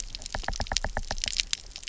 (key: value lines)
label: biophony, knock
recorder: SoundTrap 300